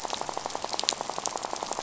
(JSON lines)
{"label": "biophony, rattle", "recorder": "SoundTrap 500"}